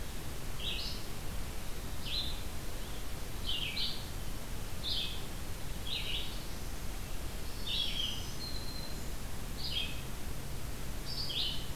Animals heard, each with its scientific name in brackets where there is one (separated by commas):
Red-eyed Vireo (Vireo olivaceus), Black-throated Green Warbler (Setophaga virens)